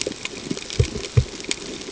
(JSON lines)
{"label": "ambient", "recorder": "HydroMoth"}